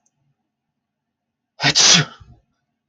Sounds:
Sneeze